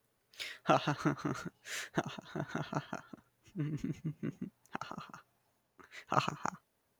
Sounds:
Laughter